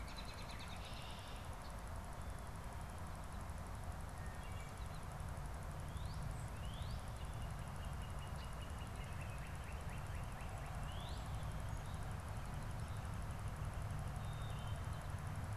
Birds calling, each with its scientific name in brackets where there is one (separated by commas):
American Robin (Turdus migratorius), Northern Cardinal (Cardinalis cardinalis), Wood Thrush (Hylocichla mustelina)